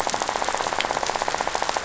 {"label": "biophony, rattle", "recorder": "SoundTrap 500"}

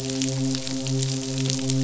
{"label": "biophony, midshipman", "recorder": "SoundTrap 500"}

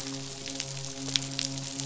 {"label": "biophony, midshipman", "recorder": "SoundTrap 500"}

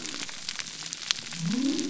{"label": "biophony", "recorder": "SoundTrap 300"}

